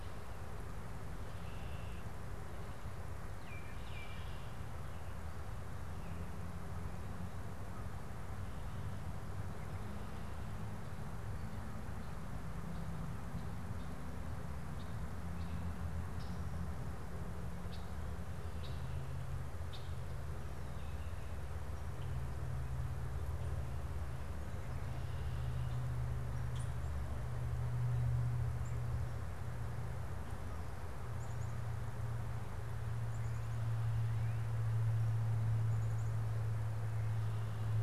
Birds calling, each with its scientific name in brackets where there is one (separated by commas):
Red-winged Blackbird (Agelaius phoeniceus), Baltimore Oriole (Icterus galbula)